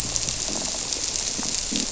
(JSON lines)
{"label": "biophony", "recorder": "SoundTrap 300"}